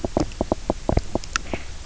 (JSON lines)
{"label": "biophony, knock", "recorder": "SoundTrap 300"}